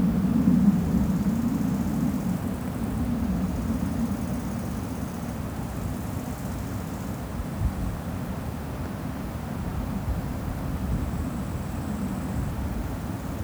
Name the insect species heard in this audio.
Chorthippus biguttulus